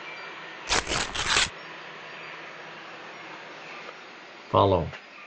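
A soft steady noise persists. At 0.67 seconds, tearing can be heard. After that, at 4.52 seconds, a voice says "follow."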